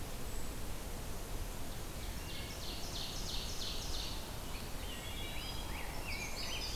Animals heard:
Eastern Wood-Pewee (Contopus virens)
Indigo Bunting (Passerina cyanea)
Wood Thrush (Hylocichla mustelina)
Rose-breasted Grosbeak (Pheucticus ludovicianus)
Ovenbird (Seiurus aurocapilla)

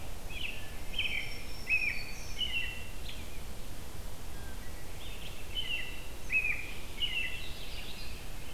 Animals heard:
American Robin (Turdus migratorius)
Black-throated Green Warbler (Setophaga virens)

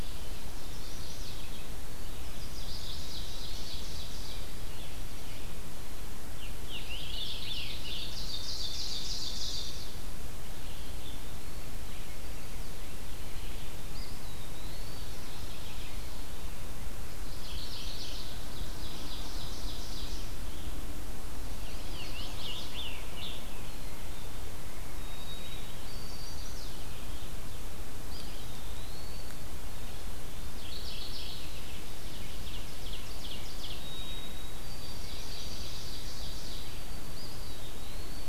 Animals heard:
Ovenbird (Seiurus aurocapilla)
Chestnut-sided Warbler (Setophaga pensylvanica)
Eastern Wood-Pewee (Contopus virens)
Scarlet Tanager (Piranga olivacea)
White-throated Sparrow (Zonotrichia albicollis)
Mourning Warbler (Geothlypis philadelphia)
Red-eyed Vireo (Vireo olivaceus)

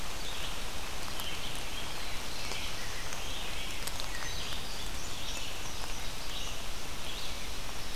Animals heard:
Indigo Bunting (Passerina cyanea)
Red-eyed Vireo (Vireo olivaceus)
Black-throated Blue Warbler (Setophaga caerulescens)
Rose-breasted Grosbeak (Pheucticus ludovicianus)

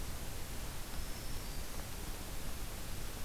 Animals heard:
Black-throated Green Warbler (Setophaga virens)

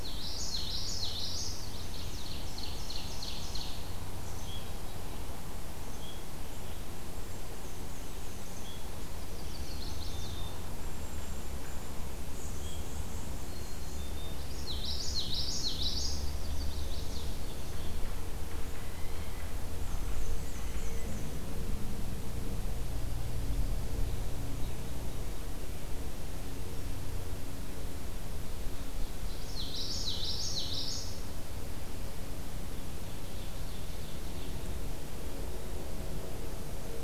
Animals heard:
Common Yellowthroat (Geothlypis trichas)
Black-capped Chickadee (Poecile atricapillus)
Chestnut-sided Warbler (Setophaga pensylvanica)
Blue Jay (Cyanocitta cristata)
Black-and-white Warbler (Mniotilta varia)
Ovenbird (Seiurus aurocapilla)

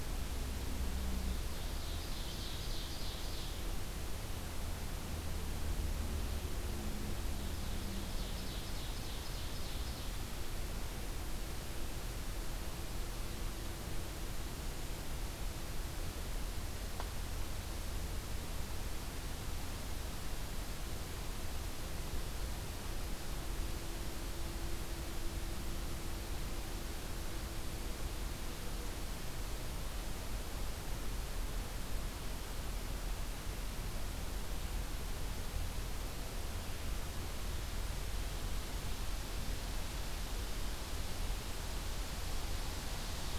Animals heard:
Ovenbird (Seiurus aurocapilla)

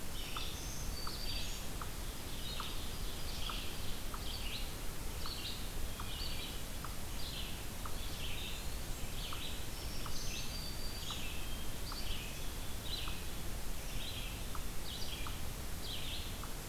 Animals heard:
Ovenbird (Seiurus aurocapilla)
Black-throated Green Warbler (Setophaga virens)
unknown mammal
Red-eyed Vireo (Vireo olivaceus)

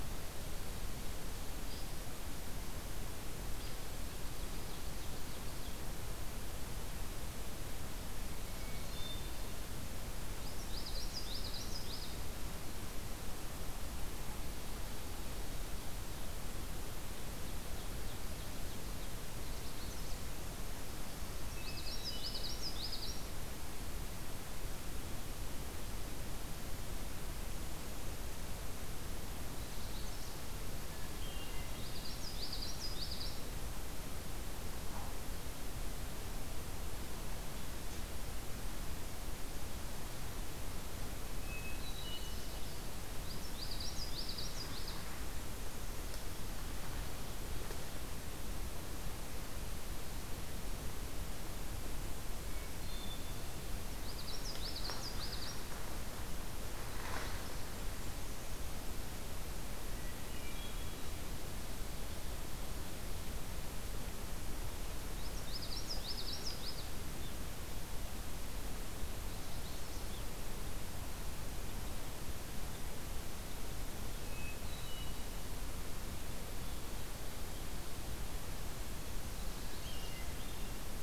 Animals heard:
Ovenbird (Seiurus aurocapilla)
Common Yellowthroat (Geothlypis trichas)
Magnolia Warbler (Setophaga magnolia)
Hermit Thrush (Catharus guttatus)

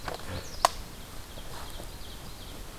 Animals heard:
Magnolia Warbler (Setophaga magnolia)
Ovenbird (Seiurus aurocapilla)

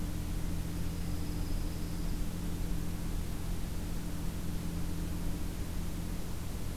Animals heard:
Dark-eyed Junco (Junco hyemalis)

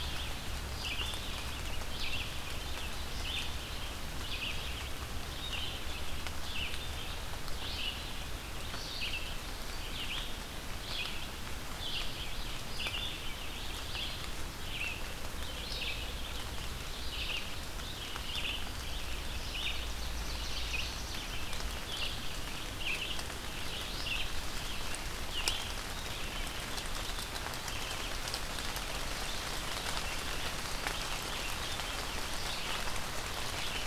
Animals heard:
Ovenbird (Seiurus aurocapilla)
Red-eyed Vireo (Vireo olivaceus)

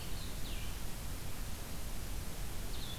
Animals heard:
Blue-headed Vireo (Vireo solitarius)

